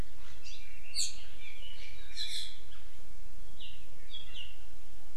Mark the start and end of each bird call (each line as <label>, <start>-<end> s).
Hawaii Amakihi (Chlorodrepanis virens), 0.4-0.6 s